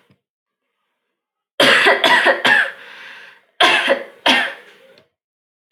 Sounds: Cough